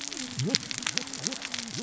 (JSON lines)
{"label": "biophony, cascading saw", "recorder": "SoundTrap 600 or HydroMoth"}